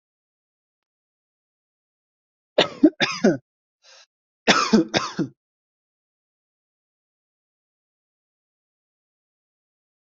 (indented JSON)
{
  "expert_labels": [
    {
      "quality": "ok",
      "cough_type": "dry",
      "dyspnea": false,
      "wheezing": false,
      "stridor": false,
      "choking": false,
      "congestion": false,
      "nothing": true,
      "diagnosis": "COVID-19",
      "severity": "mild"
    },
    {
      "quality": "ok",
      "cough_type": "dry",
      "dyspnea": false,
      "wheezing": true,
      "stridor": false,
      "choking": false,
      "congestion": false,
      "nothing": true,
      "diagnosis": "COVID-19",
      "severity": "mild"
    },
    {
      "quality": "good",
      "cough_type": "dry",
      "dyspnea": false,
      "wheezing": false,
      "stridor": false,
      "choking": false,
      "congestion": false,
      "nothing": true,
      "diagnosis": "healthy cough",
      "severity": "pseudocough/healthy cough"
    },
    {
      "quality": "good",
      "cough_type": "dry",
      "dyspnea": false,
      "wheezing": false,
      "stridor": false,
      "choking": false,
      "congestion": false,
      "nothing": true,
      "diagnosis": "healthy cough",
      "severity": "pseudocough/healthy cough"
    }
  ],
  "gender": "female",
  "respiratory_condition": false,
  "fever_muscle_pain": false,
  "status": "healthy"
}